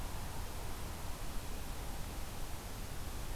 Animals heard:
forest ambience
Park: Marsh-Billings-Rockefeller National Historical Park